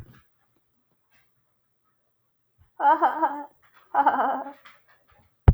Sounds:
Laughter